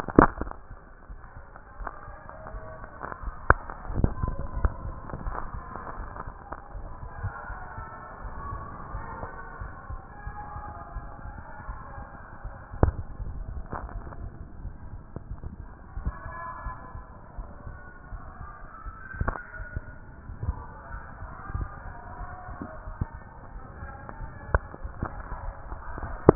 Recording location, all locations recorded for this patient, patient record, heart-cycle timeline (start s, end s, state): aortic valve (AV)
aortic valve (AV)+pulmonary valve (PV)+tricuspid valve (TV)+mitral valve (MV)
#Age: nan
#Sex: Female
#Height: nan
#Weight: nan
#Pregnancy status: True
#Murmur: Absent
#Murmur locations: nan
#Most audible location: nan
#Systolic murmur timing: nan
#Systolic murmur shape: nan
#Systolic murmur grading: nan
#Systolic murmur pitch: nan
#Systolic murmur quality: nan
#Diastolic murmur timing: nan
#Diastolic murmur shape: nan
#Diastolic murmur grading: nan
#Diastolic murmur pitch: nan
#Diastolic murmur quality: nan
#Outcome: Abnormal
#Campaign: 2014 screening campaign
0.00	6.61	unannotated
6.61	6.75	diastole
6.75	6.88	S1
6.88	7.02	systole
7.02	7.08	S2
7.08	7.22	diastole
7.22	7.34	S1
7.34	7.50	systole
7.50	7.57	S2
7.57	7.78	diastole
7.78	7.86	S1
7.86	7.98	systole
7.98	8.04	S2
8.04	8.22	diastole
8.22	8.34	S1
8.34	8.50	systole
8.50	8.62	S2
8.62	8.92	diastole
8.92	9.04	S1
9.04	9.20	systole
9.20	9.30	S2
9.30	9.62	diastole
9.62	9.72	S1
9.72	9.90	systole
9.90	10.00	S2
10.00	10.26	diastole
10.26	10.36	S1
10.36	10.54	systole
10.54	10.64	S2
10.64	10.94	diastole
10.94	11.06	S1
11.06	11.24	systole
11.24	11.36	S2
11.36	11.68	diastole
11.68	11.80	S1
11.80	11.96	systole
11.96	12.06	S2
12.06	12.44	diastole
12.44	26.35	unannotated